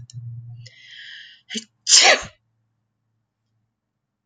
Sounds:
Sneeze